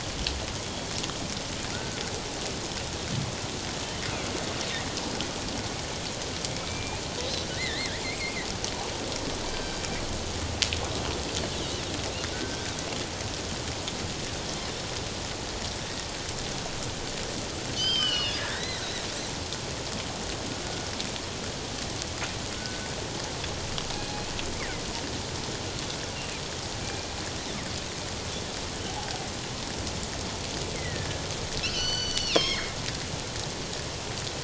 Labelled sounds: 1.7	2.0	killer whale, northern resident, G clan, 1.3 to 1.6 kHz
6.6	8.4	killer whale, northern resident, G clan, 1.7 to 4.3 kHz
9.5	9.8	killer whale, northern resident, G clan, 1.4 to 4.7 kHz
12.3	12.7	killer whale, northern resident, G clan, 1.4 to 1.6 kHz
17.7	18.8	killer whale, northern resident, G clan, 1.4 to 5.3 kHz
22.6	22.9	killer whale, northern resident, G clan, 1.4 to 1.6 kHz
26.8	27.2	killer whale, northern resident, G clan, 2.3 to 2.5 kHz
30.8	32.8	killer whale, northern resident, G clan, 1.6 to 6.2 kHz

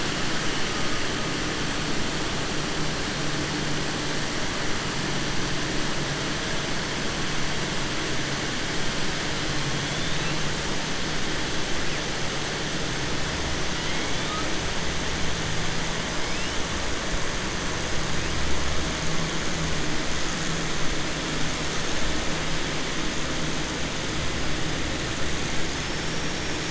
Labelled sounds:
25.8	26.6	killer whale, 5.2 to 5.7 kHz

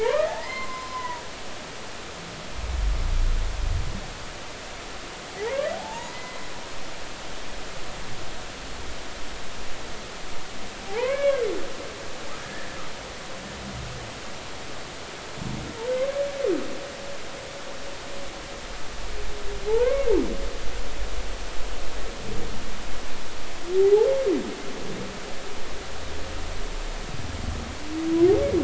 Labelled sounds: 0.0	1.2	humpback whale, 0.80 to 4.3 kHz
5.7	6.4	humpback whale, 0.80 to 2.1 kHz
10.9	11.4	humpback whale, 0.80 to 2.3 kHz
12.4	12.7	humpback whale, 1.6 to 1.9 kHz
19.7	20.1	humpback whale, 0.80 to 2.3 kHz
23.8	24.1	humpback whale, 0.80 to 0.93 kHz

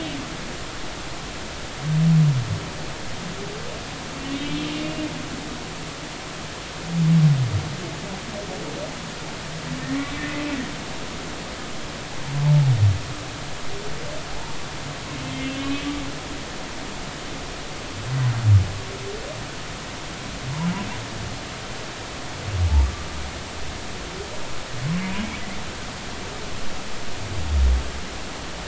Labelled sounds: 4.3	4.7	humpback whale, 2.6 to 3.4 kHz
15.2	15.9	humpback whale, 2.0 to 3.2 kHz

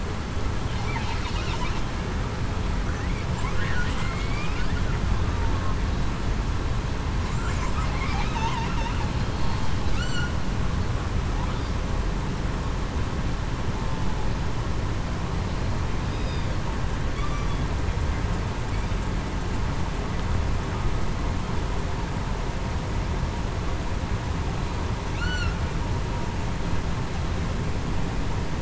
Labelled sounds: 4.0	4.5	killer whale, southern resident, 2.0 to 2.5 kHz
8.3	8.7	killer whale, southern resident, 0.87 to 1.0 kHz
9.9	10.3	killer whale, southern resident, 1.2 to 1.5 kHz
25.1	25.6	killer whale, southern resident, 1.3 to 4.5 kHz

